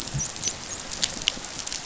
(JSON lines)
{"label": "biophony, dolphin", "recorder": "SoundTrap 500"}